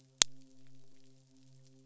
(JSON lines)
{"label": "biophony, midshipman", "recorder": "SoundTrap 500"}